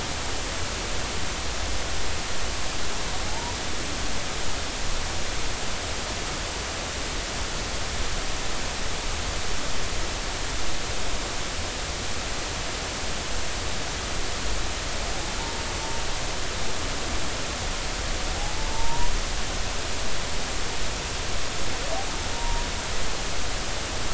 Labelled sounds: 3.3	3.6	humpback whale, 0.80 to 1.0 kHz
15.4	15.6	humpback whale, 0.86 to 1.0 kHz
18.7	19.1	humpback whale, 0.86 to 1.0 kHz
22.3	22.6	humpback whale, 0.90 to 1.1 kHz

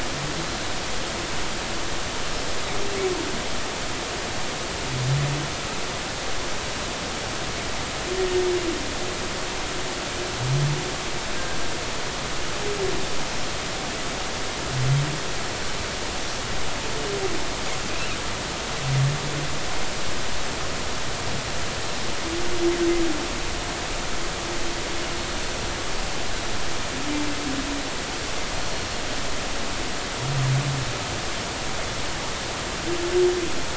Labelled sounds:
8.2	8.5	humpback whale, 1.8 to 1.9 kHz

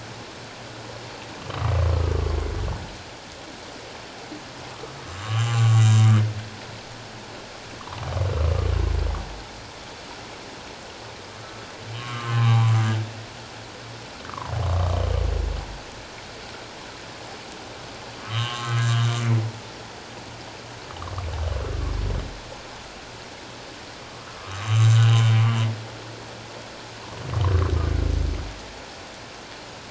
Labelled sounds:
5.1	6.0	humpback whale, 1.0 to 7.4 kHz
7.8	8.0	humpback whale, 0.81 to 1.3 kHz
11.9	12.7	humpback whale, 0.78 to 3.2 kHz
14.3	14.5	humpback whale, 0.84 to 1.3 kHz
18.2	19.2	humpback whale, 1.0 to 3.3 kHz
24.4	25.3	humpback whale, 1.0 to 7.4 kHz

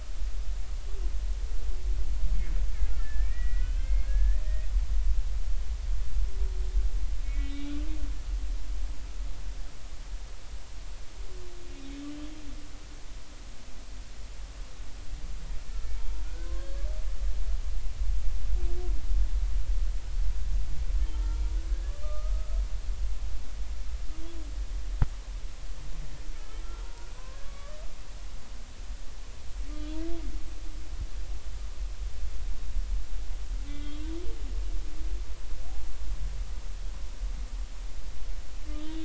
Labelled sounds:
3.0	5.2	humpback whale, 1.6 to 3.2 kHz
7.2	7.7	humpback whale, 2.1 to 3.9 kHz
16.0	16.8	humpback whale, 0.86 to 4.5 kHz
21.0	21.4	humpback whale, 1.2 to 3.2 kHz
22.0	22.5	humpback whale, 1.2 to 1.3 kHz
26.8	27.1	humpback whale, 0.90 to 1.5 kHz
27.4	27.8	humpback whale, 1.1 to 1.3 kHz
29.7	30.1	humpback whale, 3.3 to 4.2 kHz
33.7	34.0	humpback whale, 2.0 to 3.4 kHz
38.7	39.0	humpback whale, 2.9 to 3.9 kHz

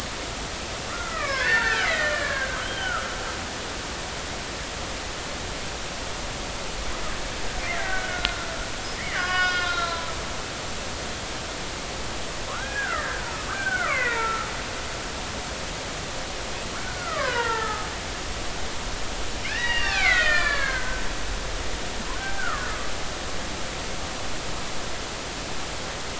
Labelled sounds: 1.0	3.0	killer whale, Bigg's (transient), 1.2 to 4.6 kHz
7.8	10.1	killer whale, Bigg's (transient), 0.96 to 5.2 kHz
12.5	14.5	killer whale, Bigg's (transient), 0.86 to 2.8 kHz
16.8	17.9	killer whale, Bigg's (transient), 0.83 to 3.1 kHz
19.4	21.0	killer whale, Bigg's (transient), 1.1 to 5.1 kHz
22.1	22.7	killer whale, Bigg's (transient), 1.0 to 1.6 kHz

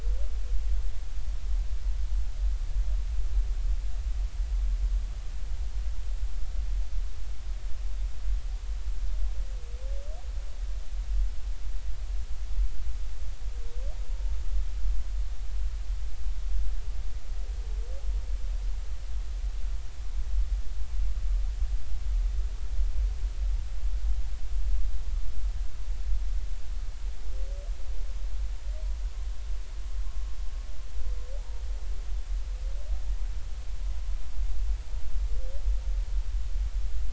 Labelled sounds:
31.4	31.6	humpback whale, 0.80 to 0.99 kHz

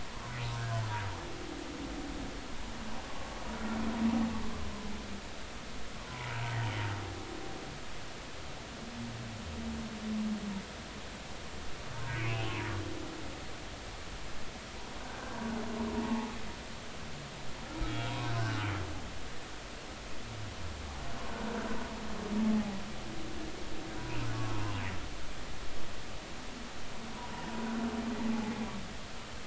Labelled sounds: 0.6	0.8	humpback whale, 1.4 to 1.7 kHz
6.1	6.4	humpback whale, 0.90 to 1.1 kHz
12.2	12.6	humpback whale, 2.0 to 3.1 kHz
15.0	15.4	humpback whale, 1.4 to 1.7 kHz
16.0	16.3	humpback whale, 0.80 to 0.96 kHz
17.9	18.1	humpback whale, 3.2 to 3.4 kHz
24.3	24.8	humpback whale, 0.93 to 1.2 kHz
27.1	27.5	humpback whale, 0.86 to 1.1 kHz
28.3	28.7	humpback whale, 0.80 to 0.90 kHz

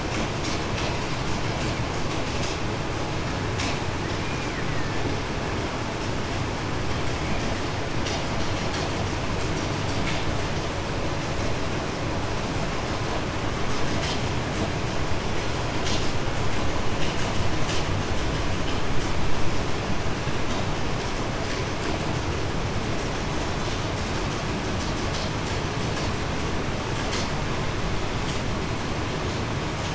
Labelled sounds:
4.7	5.0	killer whale, Bigg's (transient), 1.7 to 2.0 kHz

